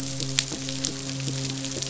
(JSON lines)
{"label": "biophony, midshipman", "recorder": "SoundTrap 500"}